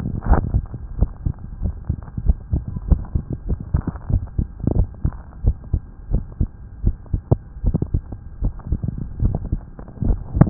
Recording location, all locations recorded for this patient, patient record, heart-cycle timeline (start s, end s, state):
tricuspid valve (TV)
aortic valve (AV)+pulmonary valve (PV)+tricuspid valve (TV)+mitral valve (MV)
#Age: Adolescent
#Sex: Male
#Height: 154.0 cm
#Weight: 35.7 kg
#Pregnancy status: False
#Murmur: Absent
#Murmur locations: nan
#Most audible location: nan
#Systolic murmur timing: nan
#Systolic murmur shape: nan
#Systolic murmur grading: nan
#Systolic murmur pitch: nan
#Systolic murmur quality: nan
#Diastolic murmur timing: nan
#Diastolic murmur shape: nan
#Diastolic murmur grading: nan
#Diastolic murmur pitch: nan
#Diastolic murmur quality: nan
#Outcome: Abnormal
#Campaign: 2015 screening campaign
0.00	0.96	unannotated
0.96	1.10	S1
1.10	1.22	systole
1.22	1.34	S2
1.34	1.60	diastole
1.60	1.76	S1
1.76	1.88	systole
1.88	1.98	S2
1.98	2.22	diastole
2.22	2.38	S1
2.38	2.50	systole
2.50	2.64	S2
2.64	2.86	diastole
2.86	3.00	S1
3.00	3.12	systole
3.12	3.24	S2
3.24	3.48	diastole
3.48	3.60	S1
3.60	3.70	systole
3.70	3.82	S2
3.82	4.08	diastole
4.08	4.24	S1
4.24	4.36	systole
4.36	4.48	S2
4.48	4.72	diastole
4.72	4.88	S1
4.88	5.00	systole
5.00	5.12	S2
5.12	5.42	diastole
5.42	5.56	S1
5.56	5.71	systole
5.71	5.82	S2
5.82	6.10	diastole
6.10	6.24	S1
6.24	6.38	systole
6.38	6.50	S2
6.50	6.82	diastole
6.82	6.96	S1
6.96	7.11	systole
7.11	7.24	S2
7.24	7.60	diastole
7.60	7.76	S1
7.76	7.92	systole
7.92	8.04	S2
8.04	8.40	diastole
8.40	8.54	S1
8.54	8.70	systole
8.70	8.82	S2
8.82	9.18	diastole
9.18	9.36	S1
9.36	9.50	systole
9.50	9.66	S2
9.66	10.02	diastole
10.02	10.19	S1
10.19	10.50	unannotated